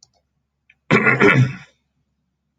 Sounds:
Throat clearing